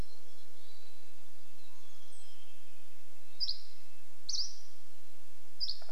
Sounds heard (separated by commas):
Mountain Chickadee song, Red-breasted Nuthatch song, Mountain Quail call, woodpecker drumming, Dusky Flycatcher song